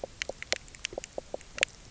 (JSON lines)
{"label": "biophony, knock croak", "recorder": "SoundTrap 300"}